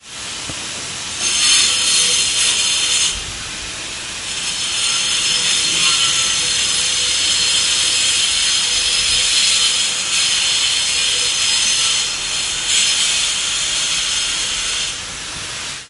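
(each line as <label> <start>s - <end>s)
A high-pitched screech from a circular saw cutting a surface. 0.0s - 15.9s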